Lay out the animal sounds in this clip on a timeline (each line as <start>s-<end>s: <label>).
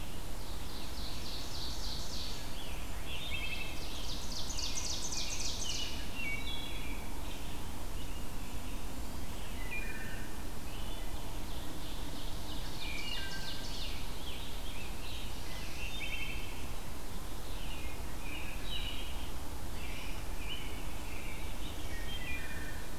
0.0s-23.0s: Red-eyed Vireo (Vireo olivaceus)
0.2s-2.7s: Ovenbird (Seiurus aurocapilla)
2.3s-4.1s: Scarlet Tanager (Piranga olivacea)
2.9s-4.0s: Wood Thrush (Hylocichla mustelina)
3.2s-6.1s: Ovenbird (Seiurus aurocapilla)
4.4s-8.7s: American Robin (Turdus migratorius)
6.0s-7.0s: Wood Thrush (Hylocichla mustelina)
8.2s-9.7s: Blackburnian Warbler (Setophaga fusca)
9.5s-10.3s: Wood Thrush (Hylocichla mustelina)
10.7s-11.2s: Wood Thrush (Hylocichla mustelina)
10.8s-14.2s: Ovenbird (Seiurus aurocapilla)
12.7s-13.6s: Wood Thrush (Hylocichla mustelina)
13.6s-15.4s: Scarlet Tanager (Piranga olivacea)
14.9s-16.1s: Black-throated Blue Warbler (Setophaga caerulescens)
15.6s-16.6s: Wood Thrush (Hylocichla mustelina)
17.5s-21.7s: American Robin (Turdus migratorius)
18.5s-19.3s: Wood Thrush (Hylocichla mustelina)
21.9s-22.9s: Wood Thrush (Hylocichla mustelina)